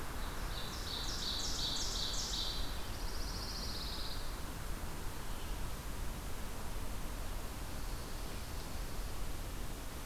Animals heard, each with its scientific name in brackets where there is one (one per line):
Pine Warbler (Setophaga pinus)
Dark-eyed Junco (Junco hyemalis)
Ovenbird (Seiurus aurocapilla)